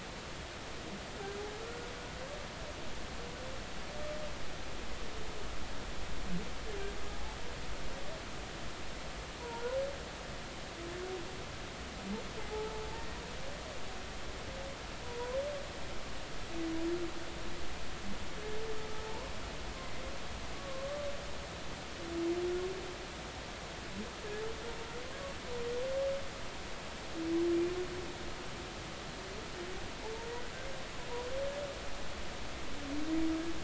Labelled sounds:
1.6	1.9	humpback whale, 1.3 to 1.5 kHz
9.4	9.8	humpback whale, 0.86 to 1.5 kHz
12.4	12.8	humpback whale, 0.80 to 0.93 kHz
19.1	19.3	humpback whale, 0.83 to 1.1 kHz
20.5	21.1	humpback whale, 1.0 to 1.2 kHz
25.1	25.4	humpback whale, 1.0 to 1.2 kHz

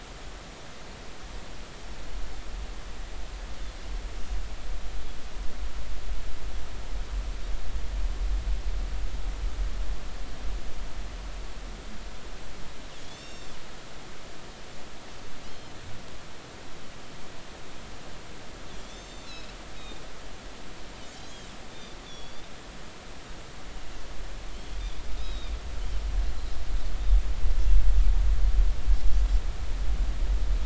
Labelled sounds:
13.0	13.6	Pacific white-sided dolphin, 2.7 to 7.4 kHz
15.5	15.7	Pacific white-sided dolphin, 2.9 to 4.3 kHz
18.7	20.0	Pacific white-sided dolphin, 3.2 to 7.3 kHz
21.7	22.4	Pacific white-sided dolphin, 3.3 to 3.7 kHz
25.2	25.5	Pacific white-sided dolphin, 3.5 to 3.9 kHz

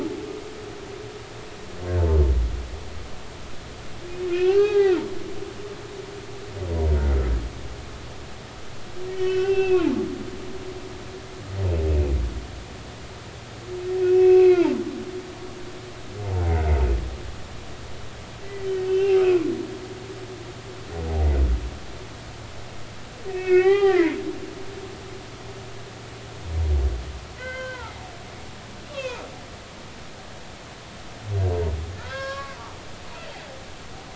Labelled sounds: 4.3	5.0	humpback whale, 0.80 to 4.7 kHz
9.1	9.9	humpback whale, 1.4 to 3.1 kHz
14.0	14.8	humpback whale, 0.83 to 2.8 kHz
18.4	19.5	humpback whale, 1.9 to 2.8 kHz
23.3	24.1	humpback whale, 0.80 to 3.3 kHz
27.4	27.9	humpback whale, 0.83 to 3.2 kHz
28.9	29.2	humpback whale, 0.90 to 2.8 kHz
32.0	33.3	humpback whale, 0.93 to 4.4 kHz

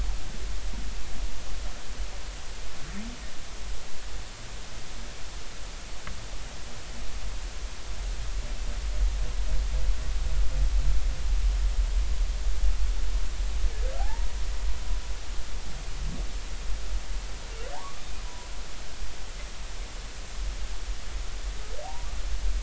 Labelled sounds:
14.0	14.3	humpback whale, 0.80 to 1.0 kHz
17.7	18.5	humpback whale, 0.80 to 1.2 kHz
21.8	22.1	humpback whale, 0.80 to 1.0 kHz

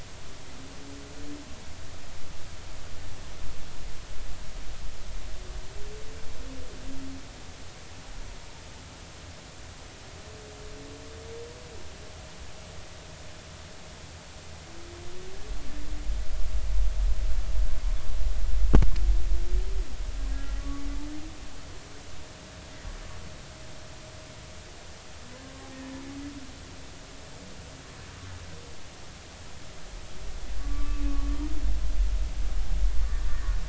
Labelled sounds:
20.6	20.8	humpback whale, 1.1 to 1.2 kHz
25.7	26.0	humpback whale, 1.7 to 1.9 kHz
30.6	31.5	humpback whale, 1.1 to 3.2 kHz
33.3	33.5	humpback whale, 1.7 to 1.9 kHz

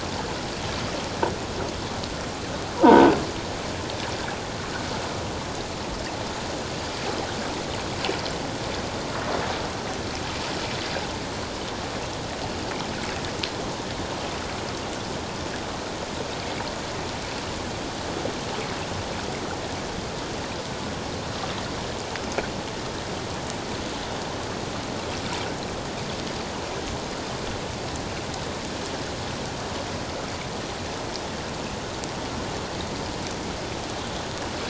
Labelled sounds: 2.8	3.1	croaking sound likely from a nearby submerged object, 0.84 to 1.6 kHz

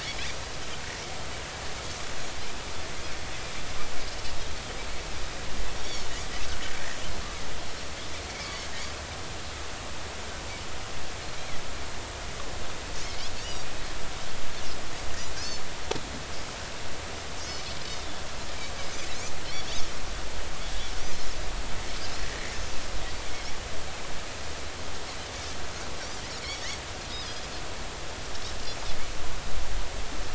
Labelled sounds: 6.8	7.1	Pacific white-sided dolphin, 5.2 to 5.8 kHz
15.4	15.6	Pacific white-sided dolphin, 4.1 to 5.4 kHz
17.4	17.8	Pacific white-sided dolphin, 5.0 to 6.0 kHz
22.2	22.5	Pacific white-sided dolphin, 1.8 to 2.1 kHz
26.5	27.4	Pacific white-sided dolphin, 4.7 to 5.7 kHz

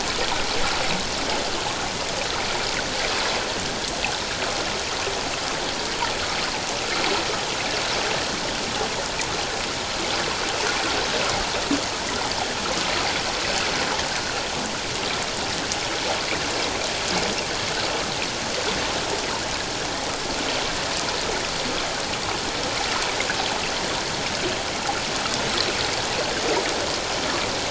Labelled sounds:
14.2	14.4	water noise, 1.3 to 1.6 kHz

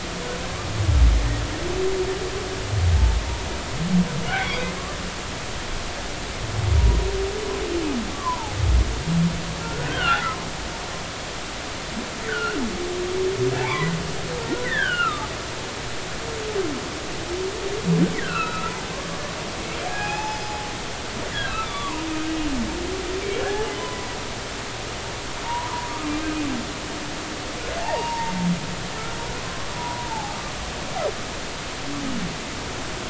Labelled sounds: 4.3	4.7	humpback whale, 2.0 to 2.6 kHz
8.1	8.5	humpback whale, 0.80 to 1.2 kHz
9.6	10.4	humpback whale, 1.2 to 3.3 kHz
12.3	12.6	humpback whale, 1.3 to 3.1 kHz
13.6	15.3	humpback whale, 0.80 to 3.7 kHz
18.1	18.7	humpback whale, 1.1 to 4.1 kHz
19.8	20.5	humpback whale, 0.80 to 5.2 kHz
21.3	24.1	humpback whale, 0.80 to 3.6 kHz
25.4	26.3	humpback whale, 0.86 to 2.6 kHz
27.8	28.3	humpback whale, 0.80 to 1.0 kHz
29.8	30.4	humpback whale, 0.80 to 1.0 kHz

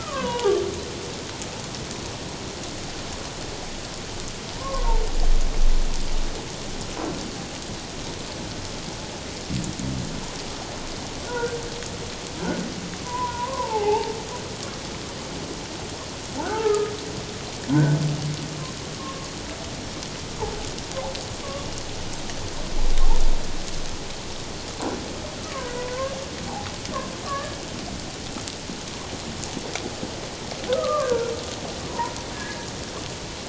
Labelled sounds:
4.5	4.9	humpback whale, 0.88 to 1.2 kHz
11.3	11.6	humpback whale, 1.3 to 1.6 kHz
13.0	14.1	humpback whale, 0.78 to 1.1 kHz
16.5	16.9	humpback whale, 0.78 to 1.8 kHz
17.7	18.0	humpback whale, 1.4 to 1.7 kHz
18.9	19.3	humpback whale, 1.0 to 1.2 kHz
25.6	26.1	humpback whale, 0.94 to 1.7 kHz
27.2	27.5	humpback whale, 1.0 to 1.2 kHz
30.7	31.3	humpback whale, 1.0 to 1.7 kHz
31.9	32.7	humpback whale, 0.88 to 1.8 kHz

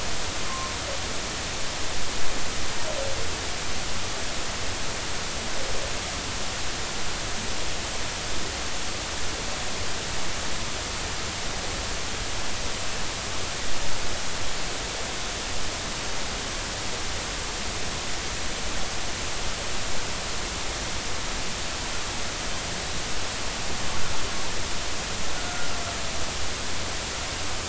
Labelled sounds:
0.5	0.7	humpback whale, 0.99 to 1.1 kHz

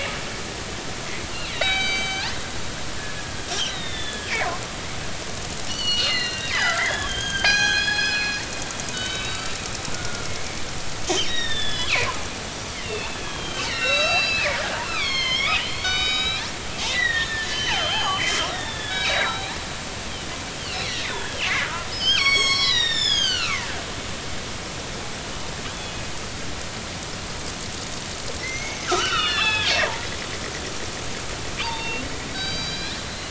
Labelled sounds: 1.5	2.4	killer whale, northern resident, G clan, 1.4 to 6.2 kHz
3.7	4.3	killer whale, northern resident, G clan, 1.6 to 4.1 kHz
5.7	8.4	killer whale, northern resident, G clan, 0.80 to 6.5 kHz
8.9	9.6	killer whale, northern resident, G clan, 1.4 to 4.7 kHz
9.9	10.3	killer whale, northern resident, G clan, 1.4 to 1.5 kHz
11.2	11.9	killer whale, northern resident, G clan, 1.6 to 5.3 kHz
12.8	16.5	killer whale, northern resident, G clan, 1.0 to 7.1 kHz
16.9	19.6	killer whale, northern resident, G clan, 0.80 to 6.8 kHz
20.6	23.7	killer whale, northern resident, G clan, 0.90 to 7.9 kHz
25.7	26.1	killer whale, northern resident, G clan, 2.5 to 3.5 kHz
28.4	29.7	killer whale, northern resident, G clan, 1.1 to 6.5 kHz
31.6	33.0	killer whale, northern resident, G clan, 0.86 to 6.3 kHz

